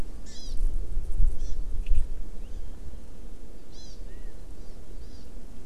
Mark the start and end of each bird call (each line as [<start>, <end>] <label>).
[0.23, 0.53] Hawaii Amakihi (Chlorodrepanis virens)
[1.33, 1.53] Hawaii Amakihi (Chlorodrepanis virens)
[3.73, 3.93] Hawaii Amakihi (Chlorodrepanis virens)
[3.73, 4.33] California Quail (Callipepla californica)
[4.53, 4.73] Hawaii Amakihi (Chlorodrepanis virens)
[5.03, 5.23] Hawaii Amakihi (Chlorodrepanis virens)